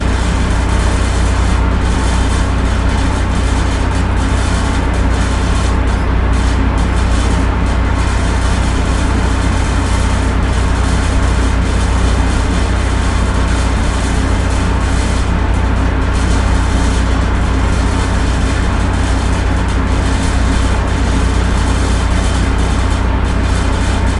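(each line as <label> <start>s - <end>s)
A ventilation system operates. 0.0s - 24.2s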